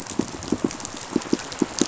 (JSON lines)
{"label": "biophony, pulse", "recorder": "SoundTrap 500"}